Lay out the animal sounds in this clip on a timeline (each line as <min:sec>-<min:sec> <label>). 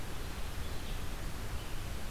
0:00.0-0:02.1 Red-eyed Vireo (Vireo olivaceus)